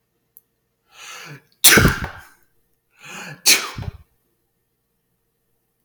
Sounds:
Sneeze